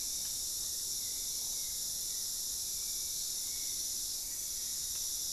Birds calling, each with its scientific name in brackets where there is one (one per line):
Spot-winged Antshrike (Pygiptila stellaris)